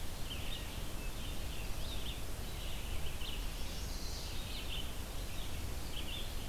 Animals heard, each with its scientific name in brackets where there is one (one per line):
Hermit Thrush (Catharus guttatus)
Red-eyed Vireo (Vireo olivaceus)
Chestnut-sided Warbler (Setophaga pensylvanica)